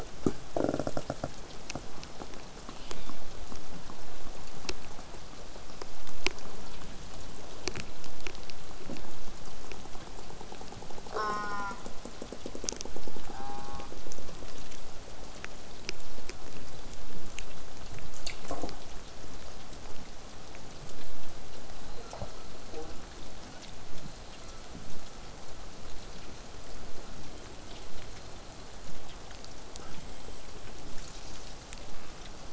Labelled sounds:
11.1	11.8	killer whale, southern resident, J pod, call S04, 0.19 to 5.9 kHz
13.3	13.9	killer whale, southern resident, J pod, call S04, 0.58 to 2.5 kHz
21.9	22.5	killer whale, southern resident, call S42, 0.15 to 1.6 kHz
24.3	24.7	killer whale, southern resident, 1.2 to 2.9 kHz

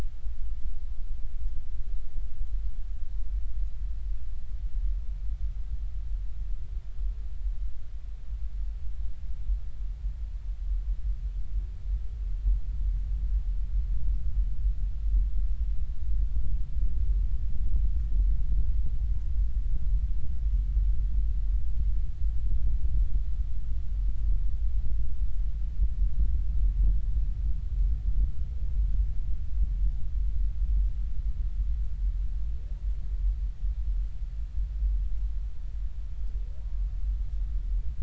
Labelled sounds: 36.6	36.9	humpback whale, 0.90 to 1.2 kHz

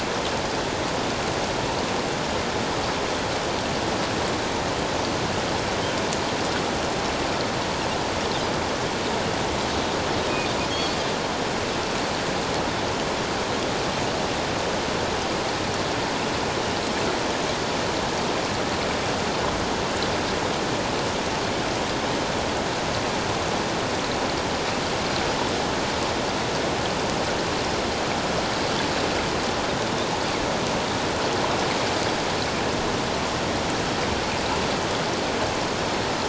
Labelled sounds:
10.7	11.0	Pacific white-sided dolphin, 4.3 to 4.5 kHz

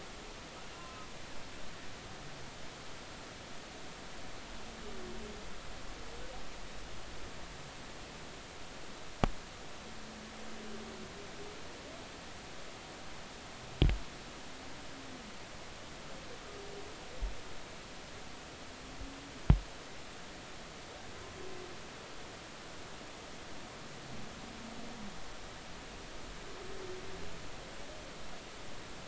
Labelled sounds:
0.7	1.1	humpback whale, 0.96 to 1.4 kHz

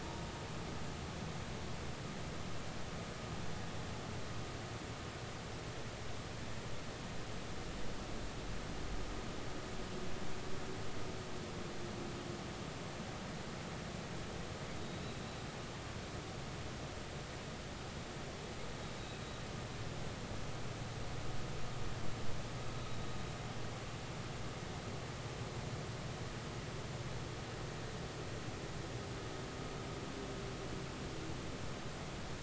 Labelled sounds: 14.8	15.2	humpback whale, 3.7 to 4.0 kHz

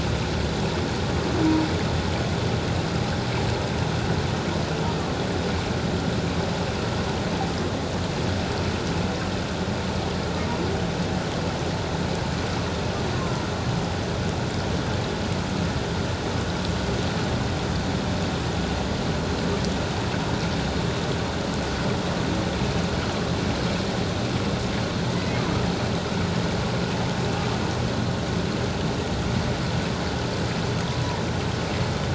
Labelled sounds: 13.2	13.5	humpback whale, 0.94 to 1.1 kHz

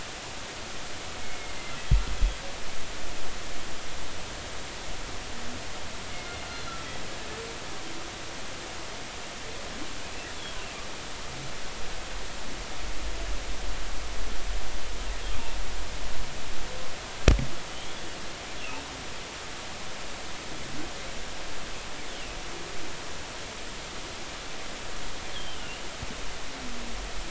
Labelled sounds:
1.2	1.6	humpback whale, 2.1 to 2.2 kHz
6.1	6.7	humpback whale, 2.1 to 4.4 kHz
17.7	18.9	humpback whale, 2.5 to 3.5 kHz
25.3	25.8	humpback whale, 2.7 to 3.5 kHz

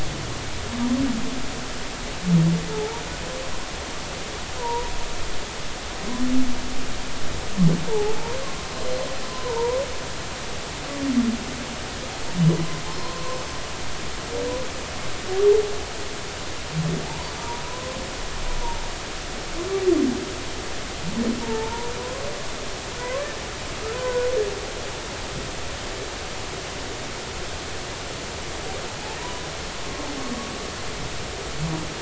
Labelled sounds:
2.7	3.0	humpback whale, 0.80 to 0.99 kHz
4.6	4.9	humpback whale, 0.86 to 1.0 kHz
7.9	8.1	humpback whale, 0.80 to 0.99 kHz
9.3	9.8	humpback whale, 0.86 to 1.1 kHz
14.0	14.4	humpback whale, 0.93 to 1.1 kHz
17.1	18.0	humpback whale, 0.80 to 1.1 kHz
21.4	21.9	humpback whale, 0.80 to 1.0 kHz
23.0	24.3	humpback whale, 0.93 to 1.5 kHz

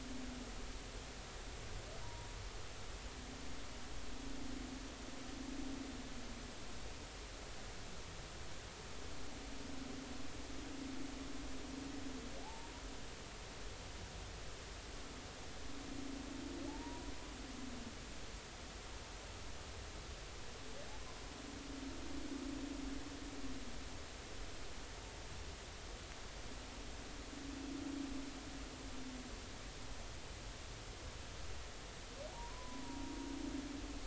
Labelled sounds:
2.0	2.3	humpback whale, 0.90 to 0.99 kHz
12.4	12.7	humpback whale, 0.80 to 0.96 kHz
16.7	17.1	humpback whale, 0.80 to 1.0 kHz
32.3	33.1	humpback whale, 0.80 to 1.1 kHz

